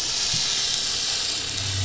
{"label": "anthrophony, boat engine", "recorder": "SoundTrap 500"}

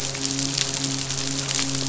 {"label": "biophony, midshipman", "recorder": "SoundTrap 500"}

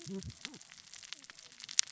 {"label": "biophony, cascading saw", "recorder": "SoundTrap 600 or HydroMoth"}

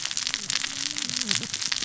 {"label": "biophony, cascading saw", "recorder": "SoundTrap 600 or HydroMoth"}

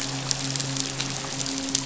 {"label": "biophony, midshipman", "recorder": "SoundTrap 500"}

